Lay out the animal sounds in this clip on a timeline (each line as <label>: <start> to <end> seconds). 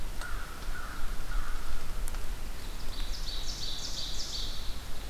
American Crow (Corvus brachyrhynchos): 0.0 to 1.9 seconds
Ovenbird (Seiurus aurocapilla): 2.4 to 5.1 seconds